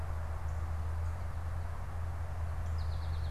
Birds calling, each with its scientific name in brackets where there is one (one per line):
Northern Cardinal (Cardinalis cardinalis)
American Goldfinch (Spinus tristis)